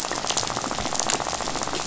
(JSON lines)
{"label": "biophony, rattle", "recorder": "SoundTrap 500"}